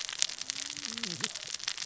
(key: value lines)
label: biophony, cascading saw
recorder: SoundTrap 600 or HydroMoth